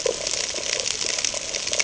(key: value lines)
label: ambient
recorder: HydroMoth